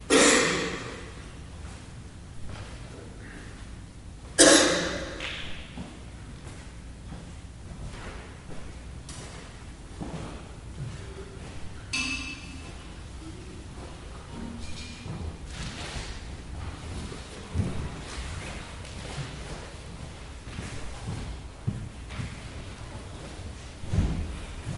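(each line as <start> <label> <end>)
0.0 A single cough echoes in an interior environment. 2.0
4.3 A single cough echoes in an interior environment. 6.0
6.4 Footsteps echoing indoors. 24.8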